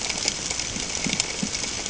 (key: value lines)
label: ambient
recorder: HydroMoth